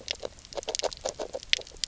{"label": "biophony, grazing", "recorder": "SoundTrap 300"}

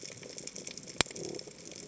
{"label": "biophony", "recorder": "HydroMoth"}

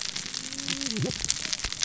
{"label": "biophony, cascading saw", "recorder": "SoundTrap 600 or HydroMoth"}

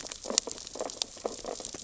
{"label": "biophony, sea urchins (Echinidae)", "recorder": "SoundTrap 600 or HydroMoth"}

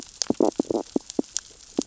{"label": "biophony, stridulation", "recorder": "SoundTrap 600 or HydroMoth"}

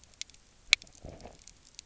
{"label": "biophony, low growl", "recorder": "SoundTrap 300"}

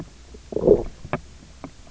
{"label": "biophony, low growl", "recorder": "SoundTrap 300"}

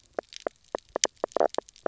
{"label": "biophony, knock croak", "recorder": "SoundTrap 300"}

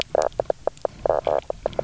{"label": "biophony, knock croak", "recorder": "SoundTrap 300"}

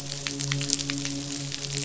{"label": "biophony, midshipman", "recorder": "SoundTrap 500"}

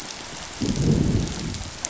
{"label": "biophony, growl", "recorder": "SoundTrap 500"}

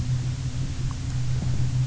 {"label": "anthrophony, boat engine", "recorder": "SoundTrap 300"}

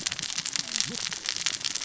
{"label": "biophony, cascading saw", "recorder": "SoundTrap 600 or HydroMoth"}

